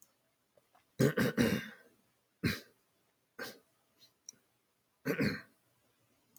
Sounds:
Throat clearing